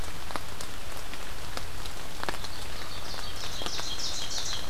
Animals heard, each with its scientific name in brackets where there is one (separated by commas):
Ovenbird (Seiurus aurocapilla)